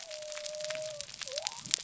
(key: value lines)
label: biophony
recorder: SoundTrap 300